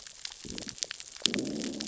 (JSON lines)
{"label": "biophony, growl", "recorder": "SoundTrap 600 or HydroMoth"}